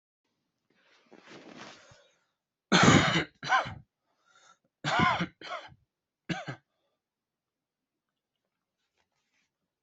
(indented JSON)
{
  "expert_labels": [
    {
      "quality": "good",
      "cough_type": "dry",
      "dyspnea": false,
      "wheezing": false,
      "stridor": false,
      "choking": false,
      "congestion": false,
      "nothing": true,
      "diagnosis": "obstructive lung disease",
      "severity": "mild"
    }
  ],
  "age": 18,
  "gender": "female",
  "respiratory_condition": false,
  "fever_muscle_pain": false,
  "status": "COVID-19"
}